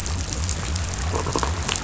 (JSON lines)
{"label": "biophony", "recorder": "SoundTrap 500"}